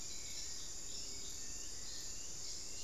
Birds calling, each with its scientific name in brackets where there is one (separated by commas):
Gray Antwren (Myrmotherula menetriesii), Hauxwell's Thrush (Turdus hauxwelli)